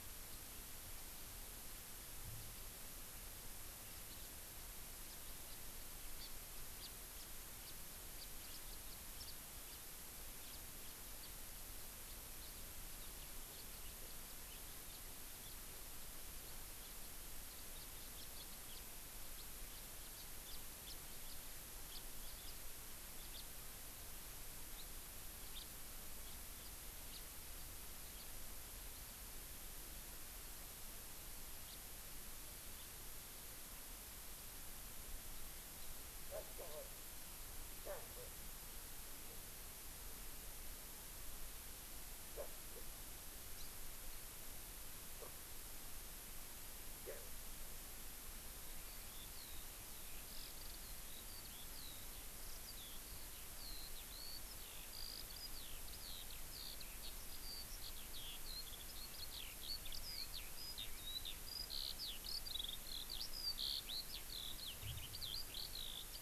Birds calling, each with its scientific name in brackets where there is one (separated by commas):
House Finch (Haemorhous mexicanus), Hawaii Amakihi (Chlorodrepanis virens), Eurasian Skylark (Alauda arvensis)